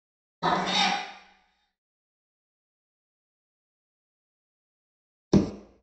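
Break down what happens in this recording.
0.42-0.94 s: a cat meows
5.31-5.51 s: the sound of wooden furniture moving

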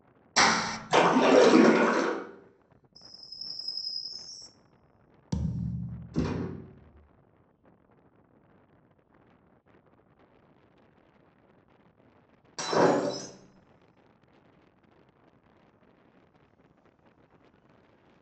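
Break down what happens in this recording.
0.36-0.78 s: hands clap
0.88-2.1 s: splashing can be heard
2.95-4.49 s: you can hear chirping
5.31-5.97 s: the sound of thumping
6.13-6.45 s: gunfire is heard
12.56-13.26 s: glass shatters

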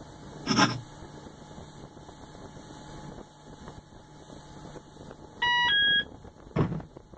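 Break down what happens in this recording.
0.44-0.78 s: the sound of writing
5.38-6.04 s: an alarm can be heard
6.54-6.84 s: a thump is audible
a soft steady noise sits beneath the sounds

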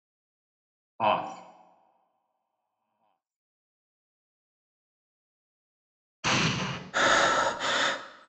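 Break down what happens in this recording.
1.0-1.22 s: someone says "off"
6.23-6.79 s: an explosion can be heard
6.92-7.98 s: someone breathes

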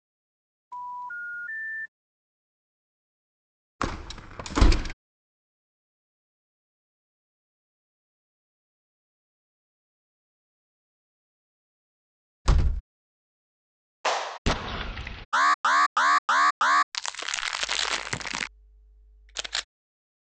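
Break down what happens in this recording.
0.71-1.89 s: the sound of a telephone
3.79-4.93 s: a window opens
12.45-12.81 s: a window closes
14.04-14.38 s: there is clapping
14.45-15.25 s: an explosion is heard
15.32-16.86 s: you can hear an alarm
16.92-18.5 s: crackling is heard
17.59-19.65 s: the sound of a camera

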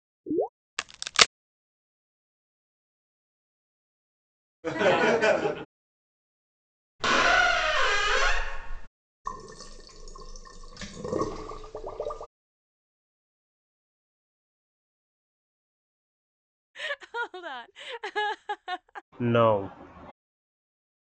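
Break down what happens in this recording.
0.23-0.49 s: water gurgles
0.77-1.27 s: cracking is heard
4.63-5.65 s: someone chuckles
7.0-8.88 s: you can hear squeaking
9.25-12.27 s: the sound of a sink filling or washing
16.74-19.02 s: a person chuckles
19.2-19.68 s: a voice says "No"

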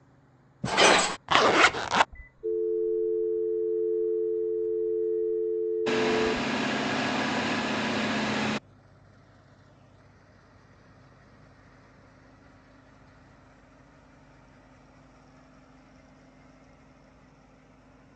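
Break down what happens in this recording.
0.61-1.17 s: the sound of glass can be heard
1.27-2.06 s: there is the sound of a zipper
2.1-6.41 s: you can hear a telephone
5.86-8.59 s: an engine is audible
a soft steady noise continues about 35 decibels below the sounds

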